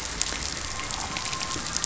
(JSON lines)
{"label": "anthrophony, boat engine", "recorder": "SoundTrap 500"}